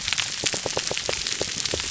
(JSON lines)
{"label": "biophony", "recorder": "SoundTrap 300"}